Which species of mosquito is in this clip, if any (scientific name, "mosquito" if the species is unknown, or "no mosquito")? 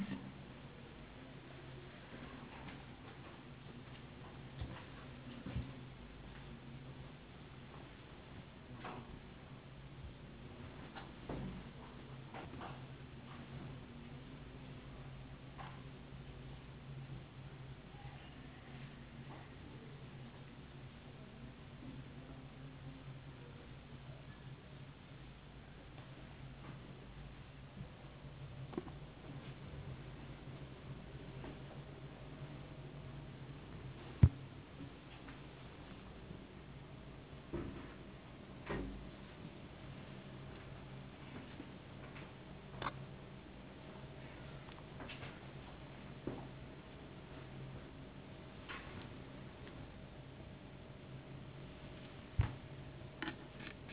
no mosquito